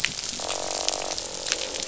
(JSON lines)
{"label": "biophony, croak", "recorder": "SoundTrap 500"}